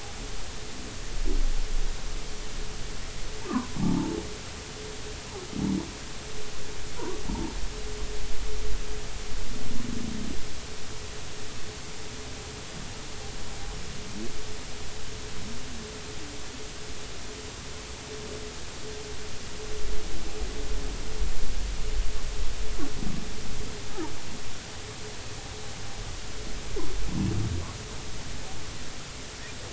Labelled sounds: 3.8	4.2	humpback whale, 0.80 to 1.1 kHz
7.0	7.2	humpback whale, 0.86 to 1.2 kHz

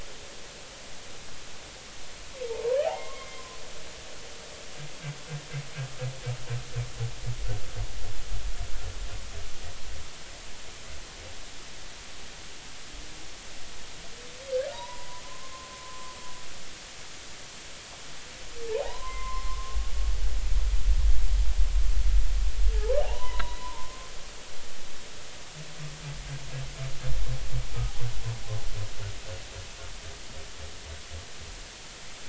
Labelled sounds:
2.5	3.4	humpback whale, 0.83 to 2.2 kHz
14.7	16.1	humpback whale, 0.86 to 1.1 kHz
18.7	19.8	humpback whale, 0.80 to 2.2 kHz
22.7	24.4	humpback whale, 0.80 to 4.1 kHz

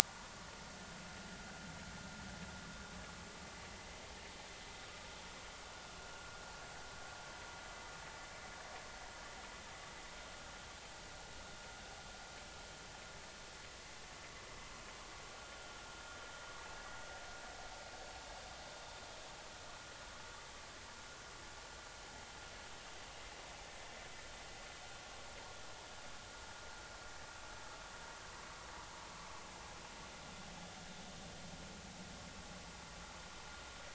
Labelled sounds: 0.0	0.3	vessel noise, 1.4 to 1.5 kHz

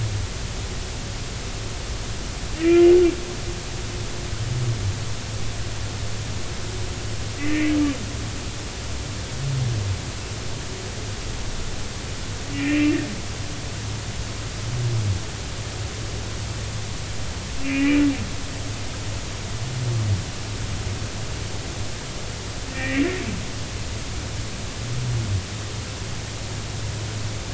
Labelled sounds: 2.5	2.9	humpback whale, 1.8 to 2.9 kHz
7.4	7.8	humpback whale, 1.8 to 2.5 kHz
12.5	13.0	humpback whale, 2.2 to 2.8 kHz
17.6	18.0	humpback whale, 2.1 to 2.9 kHz
22.7	23.1	humpback whale, 1.8 to 2.4 kHz

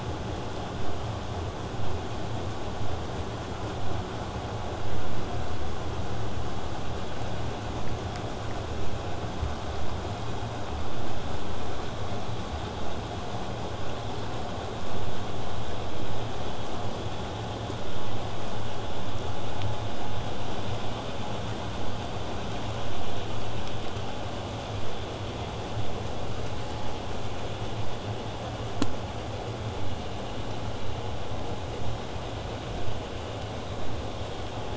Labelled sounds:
29.8	34.7	vessel noise, 0 to 8.0 kHz

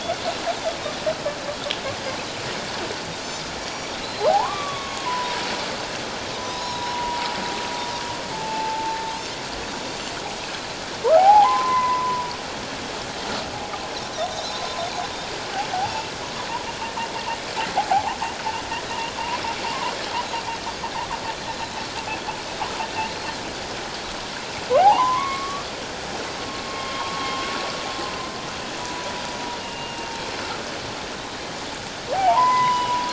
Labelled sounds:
3.6	4.3	Pacific white-sided dolphin, 3.9 to 5.8 kHz
4.2	5.4	humpback whale, 0.78 to 2.4 kHz
6.3	7.3	humpback whale, 0.84 to 1.1 kHz
6.6	6.9	Pacific white-sided dolphin, 3.7 to 4.2 kHz
8.3	9.0	humpback whale, 0.78 to 0.94 kHz
9.8	10.1	Pacific white-sided dolphin, 7.1 to 7.3 kHz
11.1	12.3	humpback whale, 0.78 to 2.1 kHz
14.4	14.6	Pacific white-sided dolphin, 3.9 to 4.1 kHz
15.9	16.1	humpback whale, 2.6 to 2.8 kHz
17.9	18.2	humpback whale, 0.78 to 1.2 kHz
19.1	19.9	humpback whale, 0.88 to 1.2 kHz
21.5	21.8	Pacific white-sided dolphin, 3.9 to 4.2 kHz
24.8	25.7	humpback whale, 0.78 to 3.1 kHz
26.7	27.5	humpback whale, 0.88 to 3.3 kHz
28.8	29.1	humpback whale, 0.94 to 1.0 kHz
29.6	30.2	humpback whale, 2.7 to 2.9 kHz
32.1	33.1	humpback whale, 0.78 to 5.1 kHz

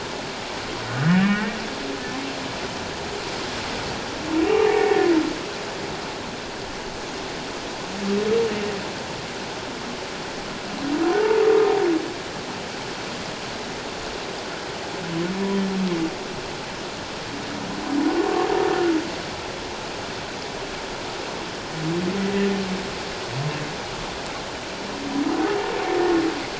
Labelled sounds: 1.1	1.6	humpback whale, 1.6 to 2.9 kHz
4.6	5.1	humpback whale, 0.78 to 1.9 kHz
18.2	18.5	humpback whale, 1.0 to 1.2 kHz

